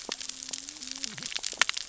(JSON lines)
{"label": "biophony, cascading saw", "recorder": "SoundTrap 600 or HydroMoth"}